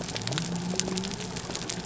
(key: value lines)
label: biophony
recorder: SoundTrap 300